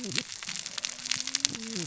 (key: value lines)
label: biophony, cascading saw
recorder: SoundTrap 600 or HydroMoth